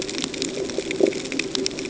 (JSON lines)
{"label": "ambient", "recorder": "HydroMoth"}